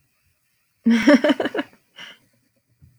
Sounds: Laughter